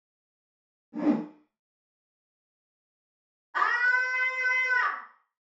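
First, the sound of a whoosh is heard. Then someone screams.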